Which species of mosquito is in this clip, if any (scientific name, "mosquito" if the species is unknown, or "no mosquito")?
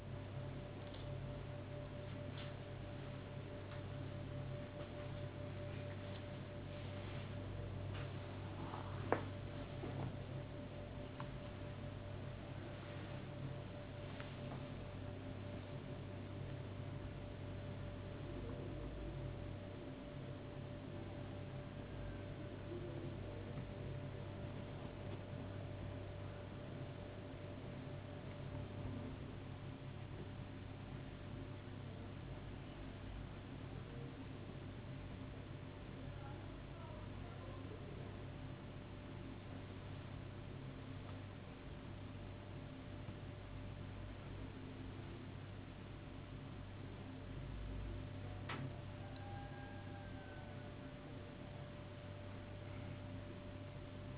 no mosquito